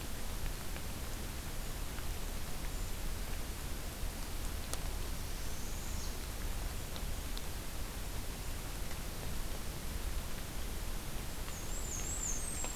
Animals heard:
Northern Parula (Setophaga americana)
Black-and-white Warbler (Mniotilta varia)

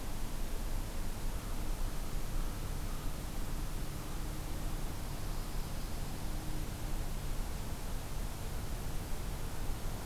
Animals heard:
Dark-eyed Junco (Junco hyemalis)
American Crow (Corvus brachyrhynchos)

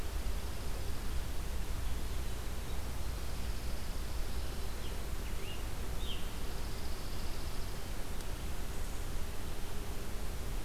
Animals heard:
Chipping Sparrow (Spizella passerina)
Scarlet Tanager (Piranga olivacea)

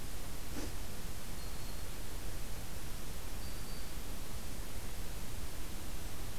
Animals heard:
Black-throated Green Warbler (Setophaga virens)

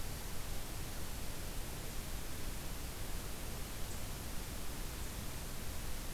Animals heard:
Winter Wren (Troglodytes hiemalis)

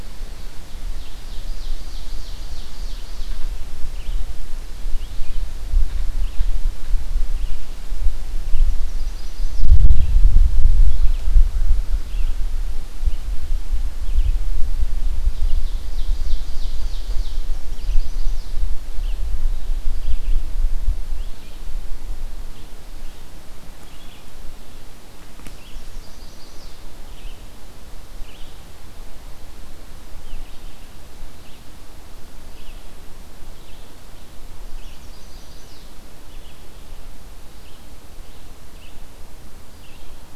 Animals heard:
Chestnut-sided Warbler (Setophaga pensylvanica)
Red-eyed Vireo (Vireo olivaceus)
Ovenbird (Seiurus aurocapilla)

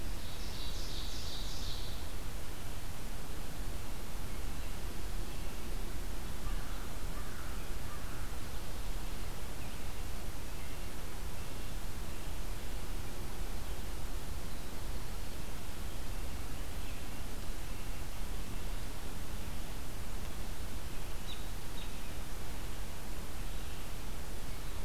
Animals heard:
American Robin (Turdus migratorius)
Ovenbird (Seiurus aurocapilla)
American Crow (Corvus brachyrhynchos)

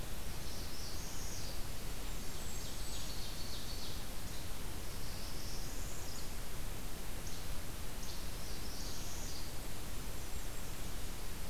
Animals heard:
Golden-crowned Kinglet (Regulus satrapa)
Ovenbird (Seiurus aurocapilla)
Northern Parula (Setophaga americana)
Least Flycatcher (Empidonax minimus)

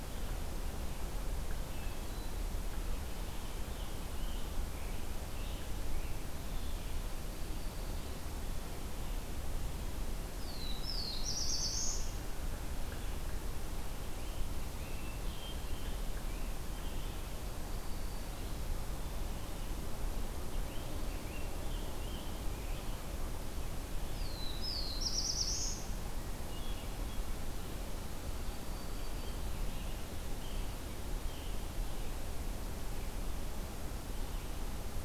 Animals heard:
Black-throated Green Warbler (Setophaga virens)
Hermit Thrush (Catharus guttatus)
Black-throated Blue Warbler (Setophaga caerulescens)
Scarlet Tanager (Piranga olivacea)

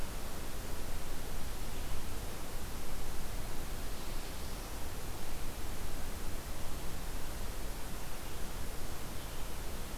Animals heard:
Black-throated Blue Warbler (Setophaga caerulescens)

